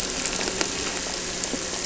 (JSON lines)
{"label": "anthrophony, boat engine", "recorder": "SoundTrap 300"}